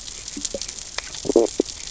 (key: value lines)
label: biophony, stridulation
recorder: SoundTrap 600 or HydroMoth